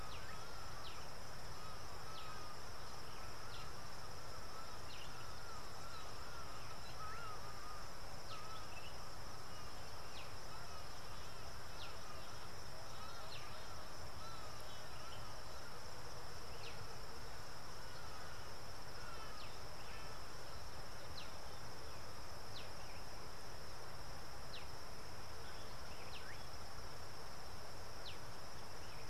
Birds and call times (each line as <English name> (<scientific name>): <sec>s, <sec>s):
Hadada Ibis (Bostrychia hagedash): 7.1s